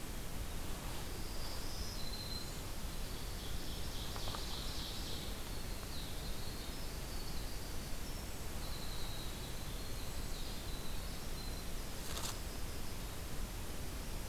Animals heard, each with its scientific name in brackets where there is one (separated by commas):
Black-throated Green Warbler (Setophaga virens), Winter Wren (Troglodytes hiemalis), Ovenbird (Seiurus aurocapilla)